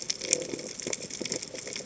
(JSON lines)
{"label": "biophony", "recorder": "HydroMoth"}